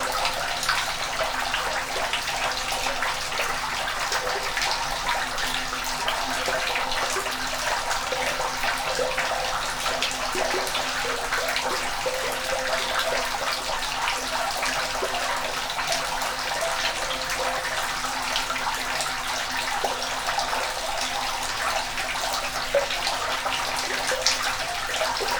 Is the flow pretty much unaltered, not increased or decreased?
yes